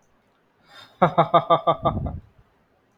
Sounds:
Laughter